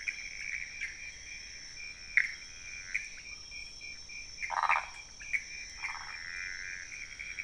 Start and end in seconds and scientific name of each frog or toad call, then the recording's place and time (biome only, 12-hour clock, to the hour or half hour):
0.0	3.0	Pithecopus azureus
3.1	3.3	Leptodactylus podicipinus
4.4	5.0	Phyllomedusa sauvagii
5.1	5.4	Leptodactylus podicipinus
5.2	7.4	Pithecopus azureus
5.8	6.2	Phyllomedusa sauvagii
Cerrado, ~1am